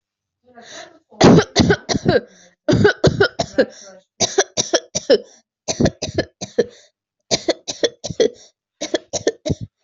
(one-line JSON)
{"expert_labels": [{"quality": "good", "cough_type": "dry", "dyspnea": false, "wheezing": false, "stridor": false, "choking": false, "congestion": false, "nothing": true, "diagnosis": "healthy cough", "severity": "pseudocough/healthy cough"}], "age": 21, "gender": "female", "respiratory_condition": false, "fever_muscle_pain": false, "status": "healthy"}